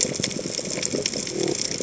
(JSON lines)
{"label": "biophony", "recorder": "HydroMoth"}